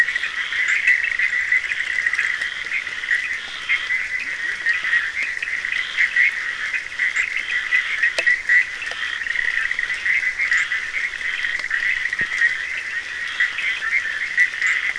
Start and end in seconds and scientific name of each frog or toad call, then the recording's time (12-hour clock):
0.0	14.9	Boana bischoffi
0.0	14.9	Scinax perereca
0.0	14.9	Sphaenorhynchus surdus
4.1	4.7	Leptodactylus latrans
12:45am